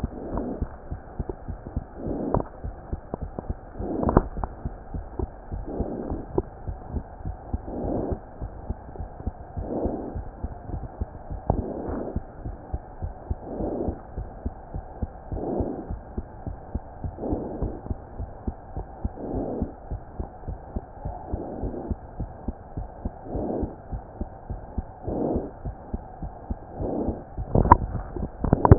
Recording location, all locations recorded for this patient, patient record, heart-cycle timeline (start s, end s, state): mitral valve (MV)
aortic valve (AV)+pulmonary valve (PV)+tricuspid valve (TV)+mitral valve (MV)
#Age: Child
#Sex: Male
#Height: 98.0 cm
#Weight: 15.9 kg
#Pregnancy status: False
#Murmur: Present
#Murmur locations: tricuspid valve (TV)
#Most audible location: tricuspid valve (TV)
#Systolic murmur timing: Holosystolic
#Systolic murmur shape: Plateau
#Systolic murmur grading: I/VI
#Systolic murmur pitch: Low
#Systolic murmur quality: Blowing
#Diastolic murmur timing: nan
#Diastolic murmur shape: nan
#Diastolic murmur grading: nan
#Diastolic murmur pitch: nan
#Diastolic murmur quality: nan
#Outcome: Abnormal
#Campaign: 2015 screening campaign
0.00	8.39	unannotated
8.39	8.50	S1
8.50	8.67	systole
8.67	8.75	S2
8.75	8.97	diastole
8.97	9.07	S1
9.07	9.24	systole
9.24	9.31	S2
9.31	9.55	diastole
9.55	9.63	S1
9.63	9.82	systole
9.82	9.89	S2
9.89	10.13	diastole
10.13	10.23	S1
10.23	10.42	systole
10.42	10.49	S2
10.49	10.70	diastole
10.70	10.82	S1
10.82	10.98	systole
10.98	11.07	S2
11.07	11.30	diastole
11.30	11.40	S1
11.40	11.56	systole
11.56	11.63	S2
11.63	11.88	diastole
11.88	11.95	S1
11.95	12.13	systole
12.13	12.21	S2
12.21	12.44	diastole
12.44	12.54	S1
12.54	12.71	systole
12.71	12.80	S2
12.80	13.00	diastole
13.00	13.13	S1
13.13	13.29	systole
13.29	13.36	S2
13.36	13.58	diastole
13.58	13.68	S1
13.68	13.86	systole
13.86	13.94	S2
13.94	14.15	diastole
14.15	14.24	S1
14.24	28.78	unannotated